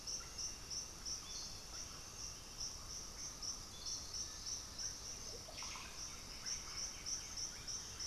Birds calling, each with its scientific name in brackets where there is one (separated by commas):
Russet-backed Oropendola (Psarocolius angustifrons)